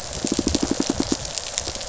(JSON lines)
{"label": "biophony, pulse", "recorder": "SoundTrap 500"}